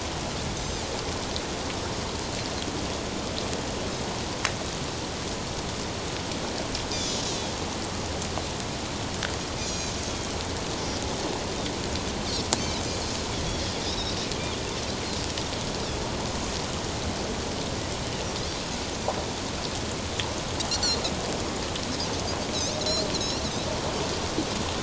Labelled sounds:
0.5	0.8	Pacific white-sided dolphin, 6.1 to 6.3 kHz
6.9	7.5	Pacific white-sided dolphin, 3.2 to 4.0 kHz
9.7	9.9	Pacific white-sided dolphin, 3.9 to 6.8 kHz
13.5	14.1	Pacific white-sided dolphin, 3.2 to 4.0 kHz
22.8	23.4	Pacific white-sided dolphin, 3.8 to 6.1 kHz

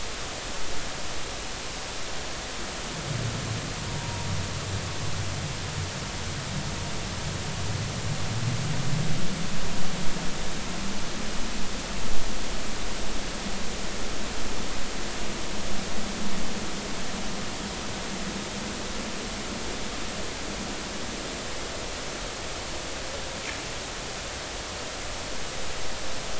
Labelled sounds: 3.8	4.3	vessel noise, 0.90 to 1.1 kHz

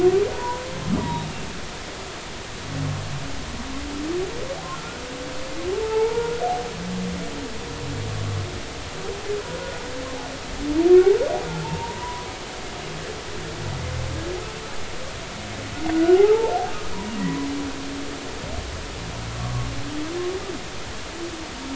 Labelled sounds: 0.3	0.6	humpback whale, 0.90 to 1.1 kHz
1.0	1.2	humpback whale, 0.90 to 0.99 kHz
4.7	5.0	humpback whale, 1.3 to 1.5 kHz
5.8	6.4	humpback whale, 0.80 to 1.5 kHz
11.6	12.3	humpback whale, 0.83 to 1.1 kHz
15.9	16.6	humpback whale, 0.80 to 1.5 kHz
19.4	19.7	humpback whale, 1.0 to 1.2 kHz

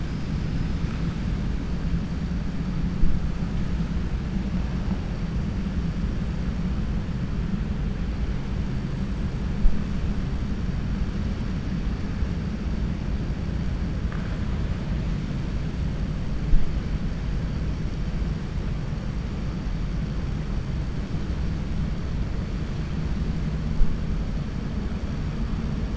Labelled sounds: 0.0	1.0	killer whale, 4.2 to 6.0 kHz

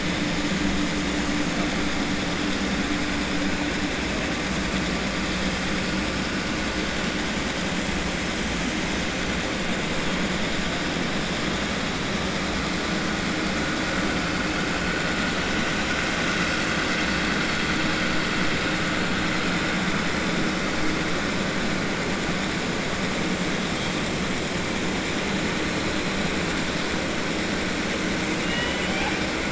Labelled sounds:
28.4	29.2	killer whale, 0.78 to 3.3 kHz

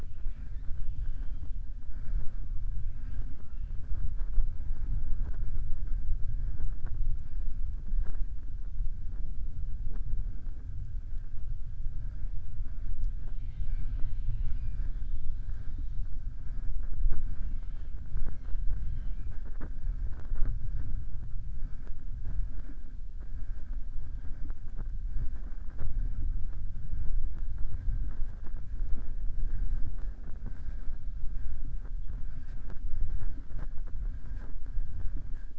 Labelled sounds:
0.0	0.7	killer whale, southern resident, 1.4 to 3.9 kHz

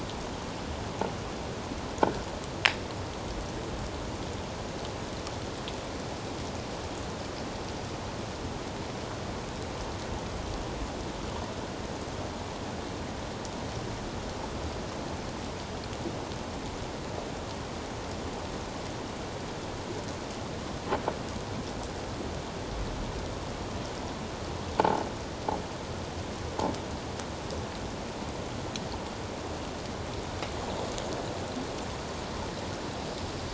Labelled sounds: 24.8	25.0	croaking sound likely from a nearby submerged object, 0.78 to 1.0 kHz

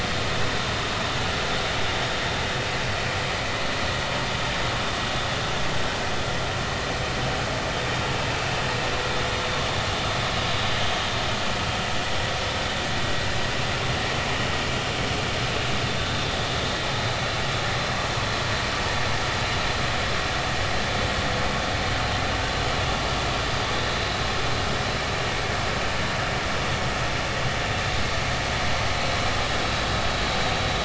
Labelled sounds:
16.0	16.3	vessel noise, 3.5 to 3.7 kHz

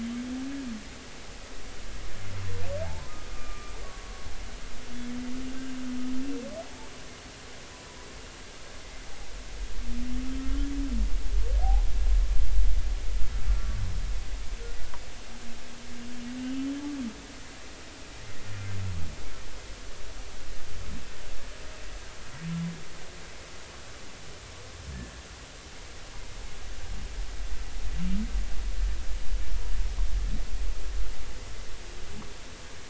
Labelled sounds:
3.3	4.3	humpback whale, 1.1 to 1.2 kHz
10.4	10.7	humpback whale, 1.2 to 1.4 kHz
16.4	16.7	humpback whale, 2.7 to 3.0 kHz

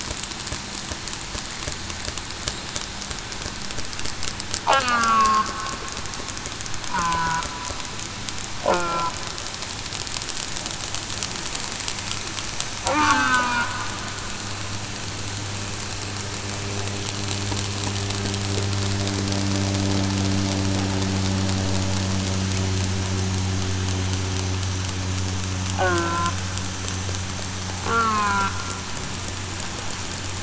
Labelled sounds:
4.7	5.4	killer whale, southern resident, 1.0 to 1.7 kHz
6.9	7.4	killer whale, southern resident, 0.94 to 1.5 kHz
8.7	9.1	killer whale, southern resident, 0.96 to 1.5 kHz
12.9	13.4	killer whale, southern resident, 0.21 to 1.3 kHz
25.7	26.1	killer whale, southern resident, 0.66 to 0.87 kHz
27.8	28.4	killer whale, southern resident, 0.40 to 2.7 kHz

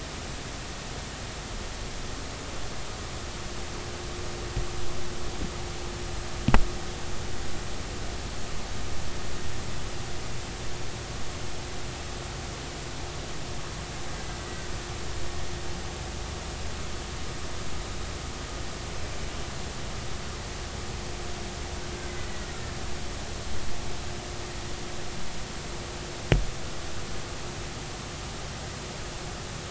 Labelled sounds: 22.2	22.5	killer whale, Bigg's (transient), 1.9 to 2.0 kHz

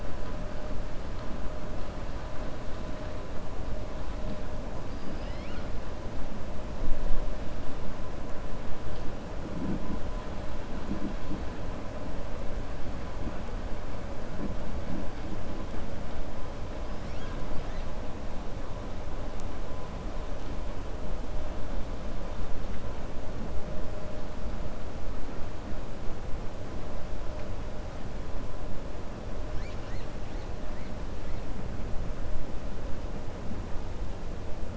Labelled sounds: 4.8	5.7	killer whale, 1.3 to 5.4 kHz
16.9	17.4	killer whale, 1.5 to 6.7 kHz

